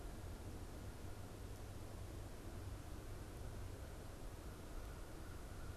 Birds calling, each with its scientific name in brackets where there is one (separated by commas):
American Crow (Corvus brachyrhynchos)